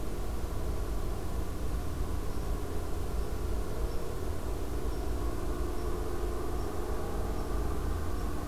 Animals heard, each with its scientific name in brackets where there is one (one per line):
Red Squirrel (Tamiasciurus hudsonicus)